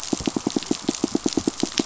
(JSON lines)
{"label": "biophony, pulse", "recorder": "SoundTrap 500"}